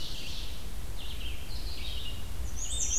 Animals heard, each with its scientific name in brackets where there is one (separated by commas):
Red-eyed Vireo (Vireo olivaceus), Ovenbird (Seiurus aurocapilla), Black-and-white Warbler (Mniotilta varia)